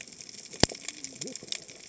{"label": "biophony, cascading saw", "recorder": "HydroMoth"}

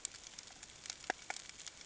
{"label": "ambient", "recorder": "HydroMoth"}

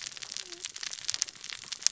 {"label": "biophony, cascading saw", "recorder": "SoundTrap 600 or HydroMoth"}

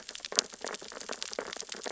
{"label": "biophony, sea urchins (Echinidae)", "recorder": "SoundTrap 600 or HydroMoth"}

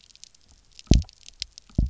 {"label": "biophony, double pulse", "recorder": "SoundTrap 300"}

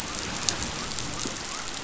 {"label": "biophony", "recorder": "SoundTrap 500"}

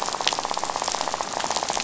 {"label": "biophony, rattle", "recorder": "SoundTrap 500"}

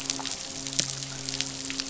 {"label": "biophony, midshipman", "recorder": "SoundTrap 500"}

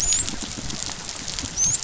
{"label": "biophony, dolphin", "recorder": "SoundTrap 500"}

